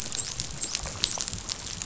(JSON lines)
{"label": "biophony, dolphin", "recorder": "SoundTrap 500"}